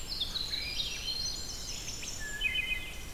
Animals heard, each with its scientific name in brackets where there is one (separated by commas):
Swainson's Thrush (Catharus ustulatus), Wood Thrush (Hylocichla mustelina), Red-eyed Vireo (Vireo olivaceus), Winter Wren (Troglodytes hiemalis)